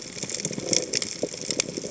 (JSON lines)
{"label": "biophony", "recorder": "HydroMoth"}